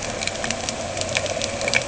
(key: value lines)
label: anthrophony, boat engine
recorder: HydroMoth